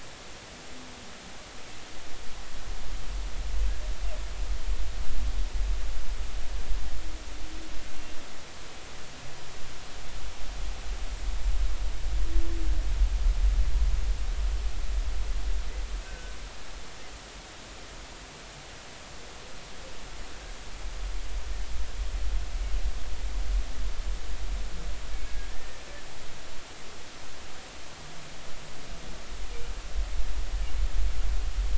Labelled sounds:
16.1	16.4	humpback whale, 1.5 to 1.6 kHz
25.1	25.8	humpback whale, 1.7 to 2.3 kHz

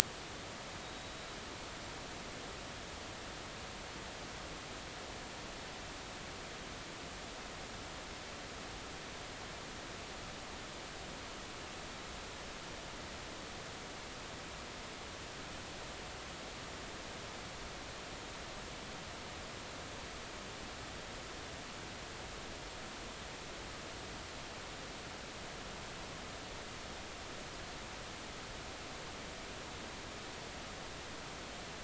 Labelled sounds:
0.8	1.4	killer whale, 3.7 to 3.9 kHz

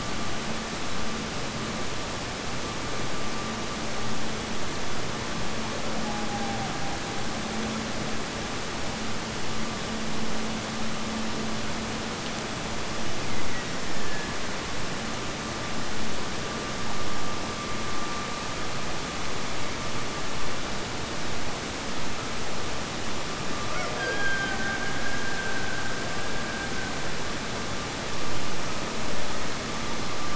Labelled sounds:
12.7	14.5	killer whale, Bigg's (transient), Gulf of Alaska transient, 1.6 to 2.9 kHz
23.5	26.9	killer whale, Bigg's (transient), Gulf of Alaska transient, 0.29 to 5.8 kHz

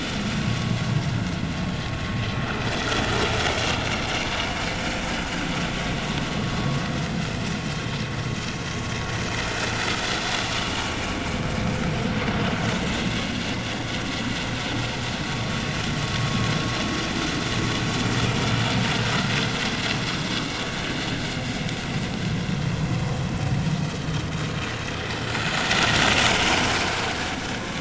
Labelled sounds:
0.4	0.8	vessel noise, 1.0 to 1.2 kHz
7.2	7.5	vessel noise, 5.2 to 5.4 kHz
10.3	10.9	vessel noise, 2.2 to 3.1 kHz
11.2	11.5	vessel noise, 2.1 to 2.4 kHz

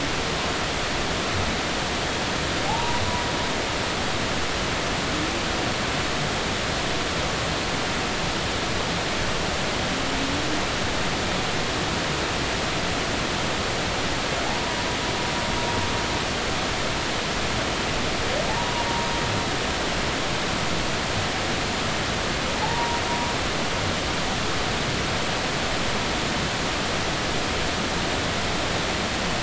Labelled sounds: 2.7	3.0	humpback whale, 0.80 to 1.0 kHz
14.5	14.7	humpback whale, 0.80 to 1.1 kHz
18.5	18.9	humpback whale, 0.80 to 1.1 kHz
22.6	23.0	humpback whale, 0.80 to 0.99 kHz

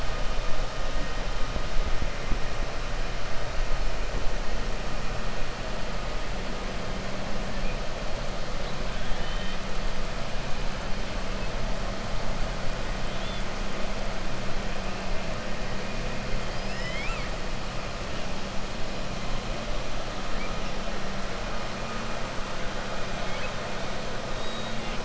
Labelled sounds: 8.9	9.6	killer whale, 2.3 to 4.0 kHz
16.4	17.3	killer whale, 1.3 to 7.4 kHz

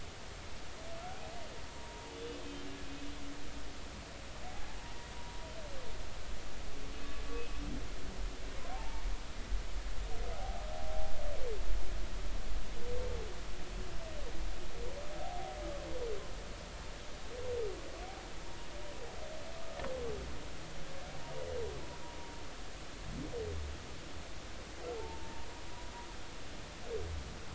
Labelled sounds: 1.8	2.1	humpback whale, 0.90 to 1.1 kHz
4.8	5.4	humpback whale, 0.90 to 2.0 kHz
8.7	9.0	humpback whale, 0.80 to 0.96 kHz
10.3	11.1	humpback whale, 0.80 to 0.86 kHz
15.2	15.6	humpback whale, 0.80 to 0.83 kHz
25.0	25.3	humpback whale, 0.80 to 0.96 kHz

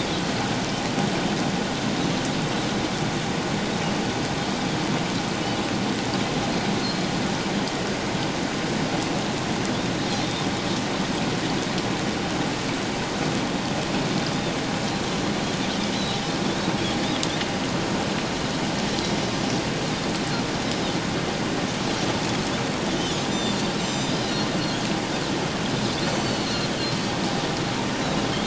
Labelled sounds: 6.8	7.1	Pacific white-sided dolphin, 4.1 to 4.4 kHz
22.9	24.4	Pacific white-sided dolphin, 3.3 to 7.5 kHz
26.1	26.7	Pacific white-sided dolphin, 2.9 to 4.6 kHz

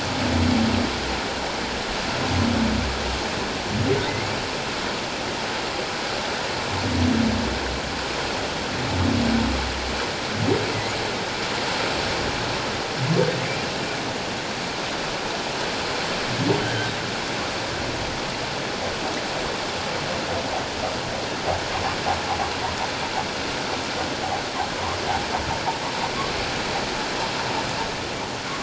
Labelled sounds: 4.0	4.3	humpback whale, 1.8 to 2.3 kHz
16.6	16.9	humpback whale, 1.5 to 1.7 kHz

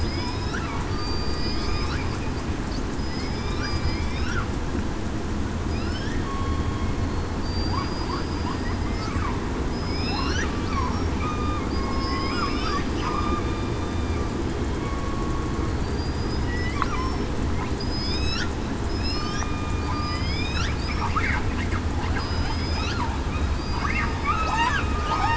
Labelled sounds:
0.2	0.6	killer whale, southern resident, 3.4 to 3.9 kHz
0.9	1.6	killer whale, southern resident, 4.5 to 4.8 kHz
3.0	3.6	killer whale, southern resident, 5.0 to 5.3 kHz
6.2	6.6	killer whale, southern resident, 1.05 to 1.12 kHz
7.4	8.5	killer whale, southern resident, 4.6 to 5.1 kHz
9.7	10.3	killer whale, southern resident, 2.5 to 5.2 kHz
11.2	13.3	killer whale, southern resident, 2.1 to 5.5 kHz
14.8	15.4	killer whale, southern resident, 1.05 to 1.12 kHz
15.8	16.5	killer whale, southern resident, 4.6 to 5.1 kHz
17.8	18.5	killer whale, southern resident, 2.3 to 5.6 kHz
18.9	19.4	killer whale, southern resident, 5.1 to 5.5 kHz
19.9	20.4	killer whale, southern resident, 4.7 to 5.0 kHz
22.2	22.9	killer whale, southern resident, 4.9 to 5.2 kHz
23.5	24.6	killer whale, southern resident, 2.2 to 4.9 kHz
24.9	25.3	killer whale, southern resident, 1.2 to 1.3 kHz

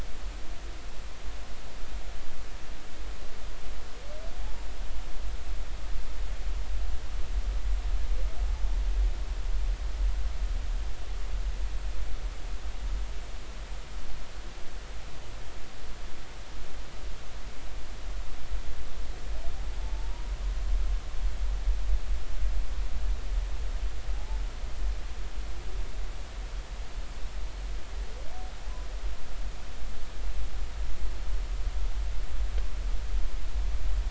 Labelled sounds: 24.1	24.4	humpback whale, 0.80 to 0.93 kHz

